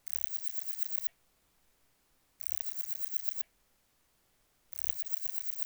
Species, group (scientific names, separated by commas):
Parnassiana fusca, Orthoptera